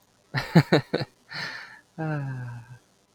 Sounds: Laughter